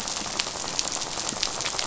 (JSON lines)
{"label": "biophony, rattle", "recorder": "SoundTrap 500"}